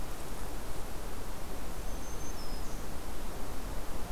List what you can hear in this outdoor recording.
Blackburnian Warbler